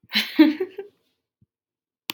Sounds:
Laughter